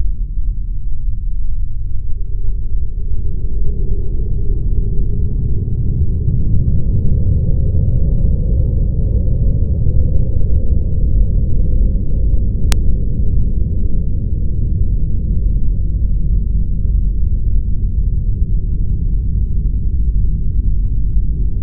Is something being smashed?
no